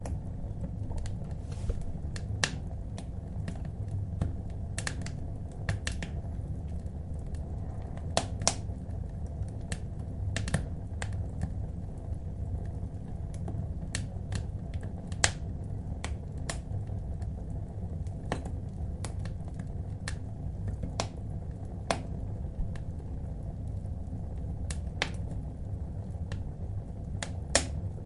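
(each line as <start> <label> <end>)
0.0 A fireplace crackles softly and rhythmically, with a steady and slightly echoing sound. 28.1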